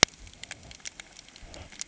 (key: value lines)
label: ambient
recorder: HydroMoth